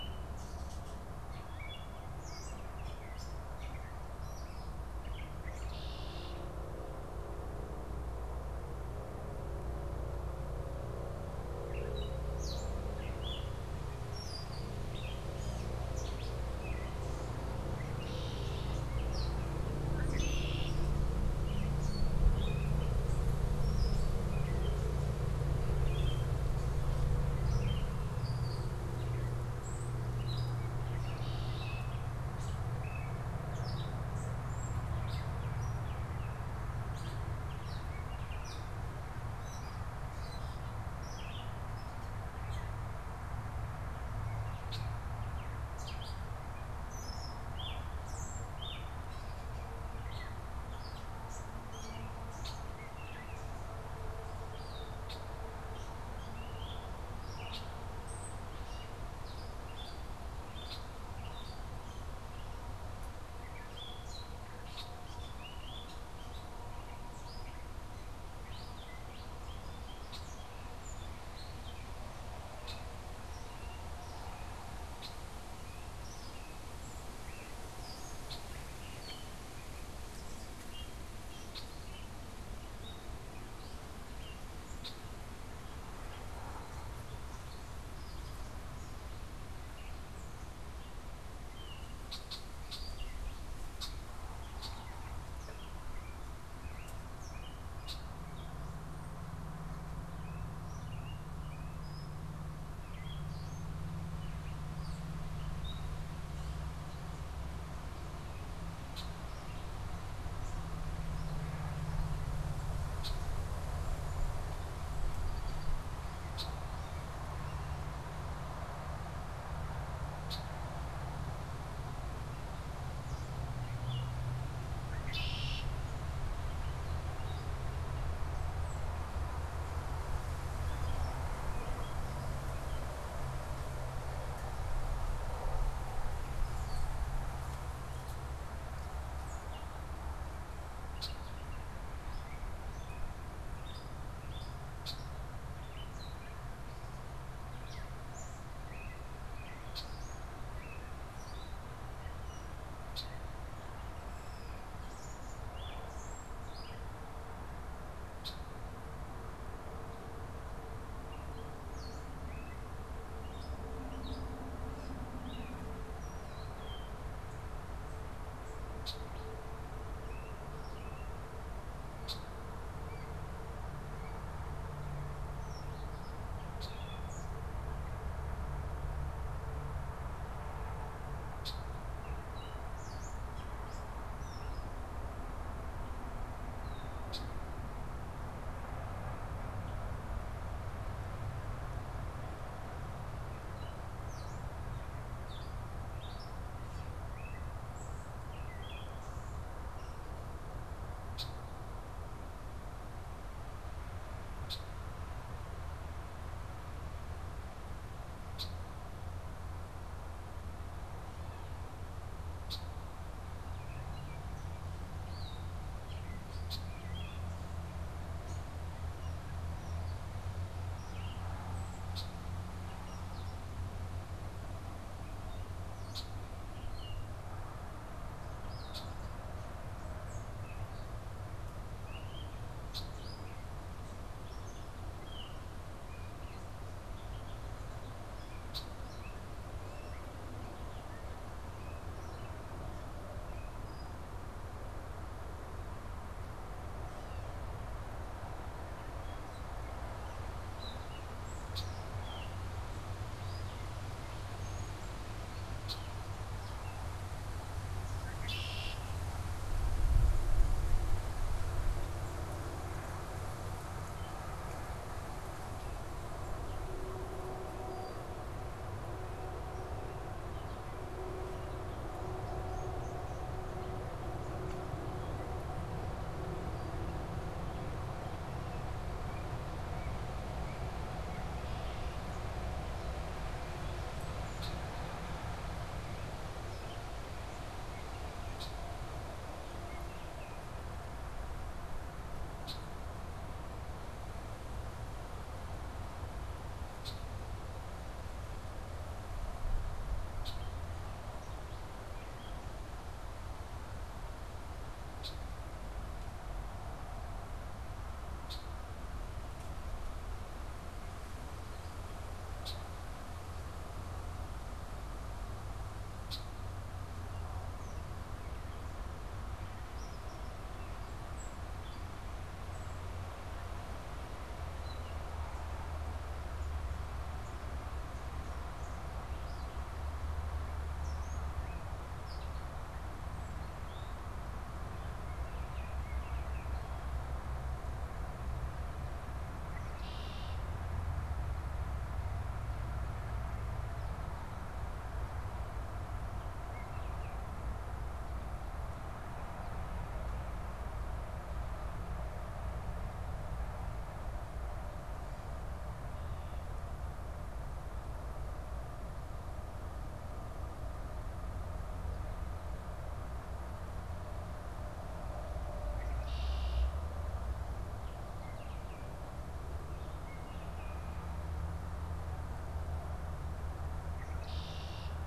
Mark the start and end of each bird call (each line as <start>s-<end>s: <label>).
0.0s-90.2s: Gray Catbird (Dumetella carolinensis)
5.0s-6.5s: Red-winged Blackbird (Agelaius phoeniceus)
19.8s-20.9s: Red-winged Blackbird (Agelaius phoeniceus)
30.7s-32.1s: Red-winged Blackbird (Agelaius phoeniceus)
42.3s-85.1s: Red-winged Blackbird (Agelaius phoeniceus)
91.9s-98.1s: Red-winged Blackbird (Agelaius phoeniceus)
100.2s-106.1s: Gray Catbird (Dumetella carolinensis)
108.8s-109.2s: Red-winged Blackbird (Agelaius phoeniceus)
112.9s-116.6s: Red-winged Blackbird (Agelaius phoeniceus)
120.1s-120.6s: Red-winged Blackbird (Agelaius phoeniceus)
124.6s-125.8s: Red-winged Blackbird (Agelaius phoeniceus)
130.3s-132.8s: Gray Catbird (Dumetella carolinensis)
140.8s-150.0s: Red-winged Blackbird (Agelaius phoeniceus)
150.4s-186.9s: Gray Catbird (Dumetella carolinensis)
152.8s-208.6s: Red-winged Blackbird (Agelaius phoeniceus)
195.0s-199.3s: Gray Catbird (Dumetella carolinensis)
212.3s-238.7s: Red-winged Blackbird (Agelaius phoeniceus)
225.1s-237.5s: Gray Catbird (Dumetella carolinensis)
251.4s-251.9s: Red-winged Blackbird (Agelaius phoeniceus)
255.6s-256.1s: Red-winged Blackbird (Agelaius phoeniceus)
257.9s-259.0s: Red-winged Blackbird (Agelaius phoeniceus)
278.2s-281.4s: unidentified bird
284.3s-284.7s: Red-winged Blackbird (Agelaius phoeniceus)
288.3s-288.6s: Red-winged Blackbird (Agelaius phoeniceus)
292.4s-292.7s: Red-winged Blackbird (Agelaius phoeniceus)
296.7s-308.7s: Red-winged Blackbird (Agelaius phoeniceus)
312.4s-316.4s: Red-winged Blackbird (Agelaius phoeniceus)
319.6s-323.0s: Gray Catbird (Dumetella carolinensis)
328.9s-334.2s: Gray Catbird (Dumetella carolinensis)
334.7s-336.5s: Baltimore Oriole (Icterus galbula)
339.4s-340.7s: Red-winged Blackbird (Agelaius phoeniceus)
365.5s-366.8s: Red-winged Blackbird (Agelaius phoeniceus)
373.9s-375.0s: Red-winged Blackbird (Agelaius phoeniceus)